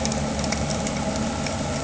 {"label": "anthrophony, boat engine", "recorder": "HydroMoth"}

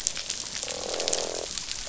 {"label": "biophony, croak", "recorder": "SoundTrap 500"}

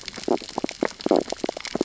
{"label": "biophony, stridulation", "recorder": "SoundTrap 600 or HydroMoth"}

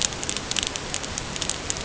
{"label": "ambient", "recorder": "HydroMoth"}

